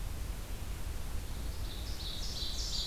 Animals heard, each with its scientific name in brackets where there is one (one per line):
Ovenbird (Seiurus aurocapilla)